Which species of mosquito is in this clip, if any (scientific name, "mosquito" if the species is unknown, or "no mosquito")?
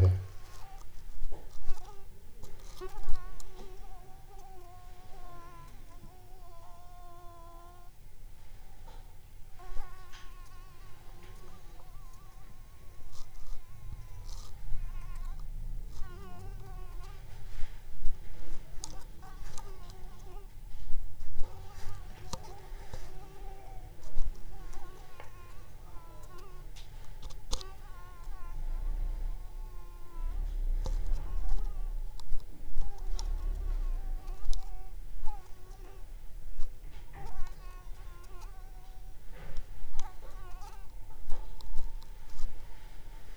Anopheles squamosus